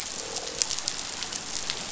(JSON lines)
{"label": "biophony, croak", "recorder": "SoundTrap 500"}